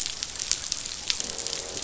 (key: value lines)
label: biophony, croak
recorder: SoundTrap 500